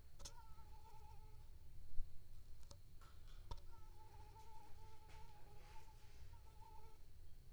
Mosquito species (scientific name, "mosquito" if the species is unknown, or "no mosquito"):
Anopheles squamosus